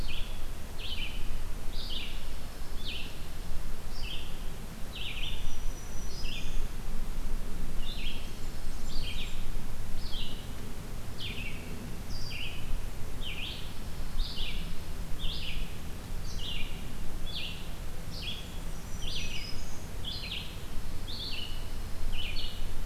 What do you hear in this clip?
Red-eyed Vireo, Dark-eyed Junco, Black-throated Green Warbler, Blackburnian Warbler, Pine Warbler